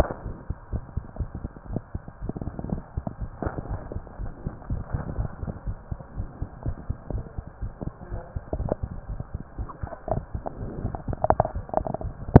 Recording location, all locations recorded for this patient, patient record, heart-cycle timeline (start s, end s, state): mitral valve (MV)
aortic valve (AV)+pulmonary valve (PV)+tricuspid valve (TV)+mitral valve (MV)
#Age: Child
#Sex: Male
#Height: 97.0 cm
#Weight: 17.0 kg
#Pregnancy status: False
#Murmur: Absent
#Murmur locations: nan
#Most audible location: nan
#Systolic murmur timing: nan
#Systolic murmur shape: nan
#Systolic murmur grading: nan
#Systolic murmur pitch: nan
#Systolic murmur quality: nan
#Diastolic murmur timing: nan
#Diastolic murmur shape: nan
#Diastolic murmur grading: nan
#Diastolic murmur pitch: nan
#Diastolic murmur quality: nan
#Outcome: Abnormal
#Campaign: 2015 screening campaign
0.00	3.68	unannotated
3.68	3.80	S1
3.80	3.90	systole
3.90	4.04	S2
4.04	4.20	diastole
4.20	4.32	S1
4.32	4.44	systole
4.44	4.54	S2
4.54	4.70	diastole
4.70	4.84	S1
4.84	4.92	systole
4.92	5.04	S2
5.04	5.16	diastole
5.16	5.32	S1
5.32	5.42	systole
5.42	5.54	S2
5.54	5.66	diastole
5.66	5.78	S1
5.78	5.90	systole
5.90	6.00	S2
6.00	6.18	diastole
6.18	6.28	S1
6.28	6.40	systole
6.40	6.48	S2
6.48	6.64	diastole
6.64	6.76	S1
6.76	6.88	systole
6.88	6.98	S2
6.98	7.12	diastole
7.12	7.24	S1
7.24	7.35	systole
7.35	7.44	S2
7.44	7.60	diastole
7.60	7.72	S1
7.72	7.84	systole
7.84	7.92	S2
7.92	8.10	diastole
8.10	8.22	S1
8.22	8.32	systole
8.32	8.42	S2
8.42	8.57	diastole
8.57	8.67	S1
8.67	8.80	systole
8.80	8.92	S2
8.92	9.07	diastole
9.07	9.18	S1
9.18	9.31	systole
9.31	9.44	S2
9.44	9.56	diastole
9.56	9.68	S1
9.68	9.80	systole
9.80	9.92	S2
9.92	10.08	diastole
10.08	10.20	S1
10.20	10.32	systole
10.32	10.44	S2
10.44	10.60	diastole
10.60	10.74	S1
10.74	10.82	systole
10.82	10.92	S2
10.92	11.05	diastole
11.05	11.18	S1
11.18	12.40	unannotated